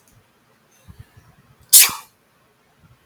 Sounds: Sneeze